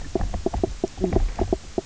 {"label": "biophony, knock croak", "recorder": "SoundTrap 300"}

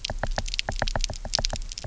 {"label": "biophony, knock", "recorder": "SoundTrap 300"}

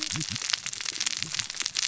{"label": "biophony, cascading saw", "recorder": "SoundTrap 600 or HydroMoth"}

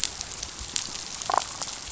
{"label": "biophony", "recorder": "SoundTrap 500"}
{"label": "biophony, damselfish", "recorder": "SoundTrap 500"}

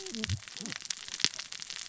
{"label": "biophony, cascading saw", "recorder": "SoundTrap 600 or HydroMoth"}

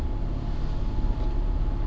{"label": "anthrophony, boat engine", "recorder": "SoundTrap 300"}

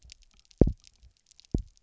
{"label": "biophony, double pulse", "recorder": "SoundTrap 300"}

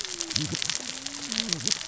{"label": "biophony, cascading saw", "recorder": "SoundTrap 600 or HydroMoth"}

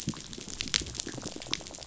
{"label": "biophony", "recorder": "SoundTrap 500"}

